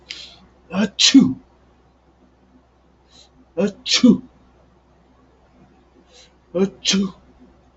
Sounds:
Sneeze